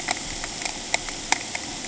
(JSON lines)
{"label": "ambient", "recorder": "HydroMoth"}